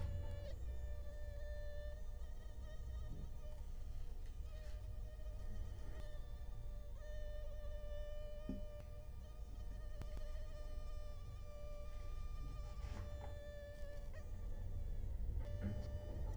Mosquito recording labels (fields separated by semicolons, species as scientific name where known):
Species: Culex quinquefasciatus; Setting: cup